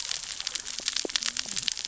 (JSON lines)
{"label": "biophony, cascading saw", "recorder": "SoundTrap 600 or HydroMoth"}